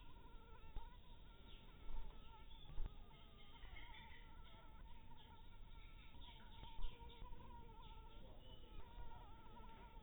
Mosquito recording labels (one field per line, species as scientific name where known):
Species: mosquito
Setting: cup